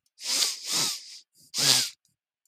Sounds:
Sniff